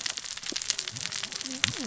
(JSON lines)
{"label": "biophony, cascading saw", "recorder": "SoundTrap 600 or HydroMoth"}